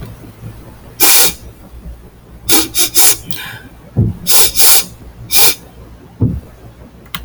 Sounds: Sniff